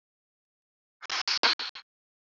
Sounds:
Sniff